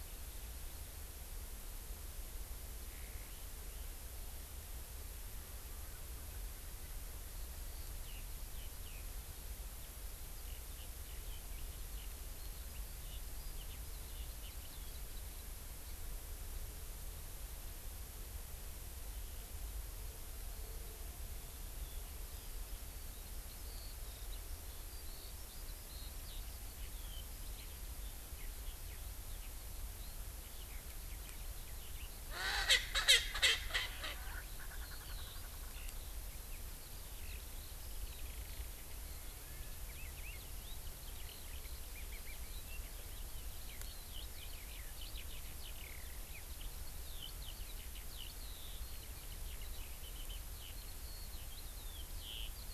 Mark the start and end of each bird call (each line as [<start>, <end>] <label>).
[11.02, 16.02] Eurasian Skylark (Alauda arvensis)
[21.72, 32.22] Eurasian Skylark (Alauda arvensis)
[32.22, 35.82] Erckel's Francolin (Pternistis erckelii)
[34.22, 52.74] Eurasian Skylark (Alauda arvensis)